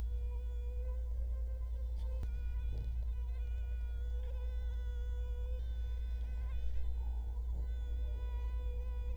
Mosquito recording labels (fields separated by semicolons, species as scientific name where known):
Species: Culex quinquefasciatus; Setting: cup